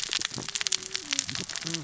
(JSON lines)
{"label": "biophony, cascading saw", "recorder": "SoundTrap 600 or HydroMoth"}